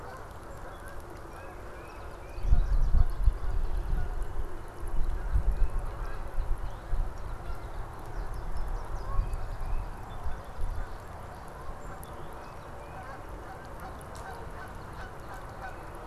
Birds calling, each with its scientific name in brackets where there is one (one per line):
Tufted Titmouse (Baeolophus bicolor)
Canada Goose (Branta canadensis)